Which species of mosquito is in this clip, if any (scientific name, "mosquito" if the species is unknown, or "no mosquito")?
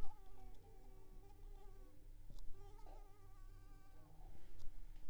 Anopheles coustani